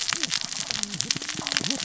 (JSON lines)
{"label": "biophony, cascading saw", "recorder": "SoundTrap 600 or HydroMoth"}